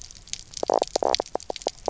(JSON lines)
{"label": "biophony, knock croak", "recorder": "SoundTrap 300"}